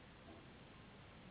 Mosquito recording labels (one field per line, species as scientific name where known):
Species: Anopheles gambiae s.s.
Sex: female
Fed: unfed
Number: one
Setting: insect culture